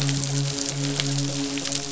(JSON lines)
{"label": "biophony, midshipman", "recorder": "SoundTrap 500"}